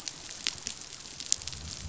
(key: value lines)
label: biophony, growl
recorder: SoundTrap 500